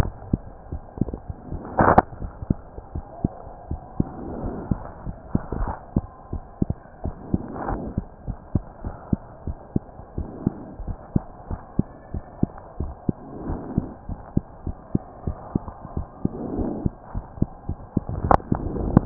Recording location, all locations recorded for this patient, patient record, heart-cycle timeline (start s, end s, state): mitral valve (MV)
aortic valve (AV)+pulmonary valve (PV)+tricuspid valve (TV)+mitral valve (MV)
#Age: Child
#Sex: Male
#Height: 95.0 cm
#Weight: 14.4 kg
#Pregnancy status: False
#Murmur: Absent
#Murmur locations: nan
#Most audible location: nan
#Systolic murmur timing: nan
#Systolic murmur shape: nan
#Systolic murmur grading: nan
#Systolic murmur pitch: nan
#Systolic murmur quality: nan
#Diastolic murmur timing: nan
#Diastolic murmur shape: nan
#Diastolic murmur grading: nan
#Diastolic murmur pitch: nan
#Diastolic murmur quality: nan
#Outcome: Normal
#Campaign: 2015 screening campaign
0.00	8.24	unannotated
8.24	8.38	S1
8.38	8.52	systole
8.52	8.64	S2
8.64	8.81	diastole
8.81	8.96	S1
8.96	9.09	systole
9.09	9.20	S2
9.20	9.43	diastole
9.43	9.58	S1
9.58	9.71	systole
9.71	9.84	S2
9.84	10.13	diastole
10.13	10.30	S1
10.30	10.42	systole
10.42	10.56	S2
10.56	10.82	diastole
10.82	10.98	S1
10.98	11.11	systole
11.11	11.22	S2
11.22	11.47	diastole
11.47	11.60	S1
11.60	11.74	systole
11.74	11.86	S2
11.86	12.10	diastole
12.10	12.24	S1
12.24	12.38	systole
12.38	12.50	S2
12.50	12.76	diastole
12.76	12.91	S1
12.91	13.04	systole
13.04	13.16	S2
13.16	13.46	diastole
13.46	13.60	S1
13.60	13.74	systole
13.74	13.88	S2
13.88	14.05	diastole
14.05	14.20	S1
14.20	19.06	unannotated